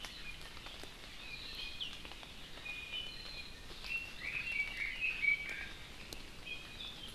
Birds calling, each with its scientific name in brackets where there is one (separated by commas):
Iiwi (Drepanis coccinea), Red-billed Leiothrix (Leiothrix lutea)